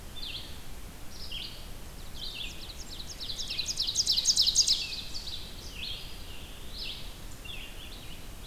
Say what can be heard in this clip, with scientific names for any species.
Vireo olivaceus, Setophaga fusca, Seiurus aurocapilla, Contopus virens